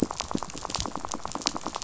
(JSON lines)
{"label": "biophony, rattle", "recorder": "SoundTrap 500"}